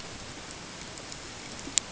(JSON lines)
{"label": "ambient", "recorder": "HydroMoth"}